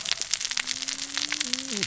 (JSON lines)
{"label": "biophony, cascading saw", "recorder": "SoundTrap 600 or HydroMoth"}